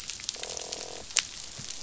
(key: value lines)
label: biophony, croak
recorder: SoundTrap 500